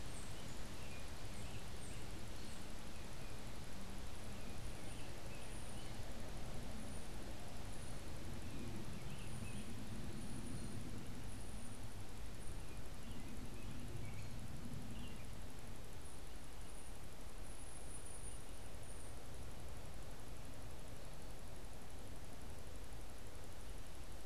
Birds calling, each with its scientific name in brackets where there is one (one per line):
Tufted Titmouse (Baeolophus bicolor)
American Robin (Turdus migratorius)